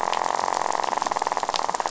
{"label": "biophony, rattle", "recorder": "SoundTrap 500"}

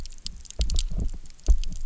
{"label": "biophony, double pulse", "recorder": "SoundTrap 300"}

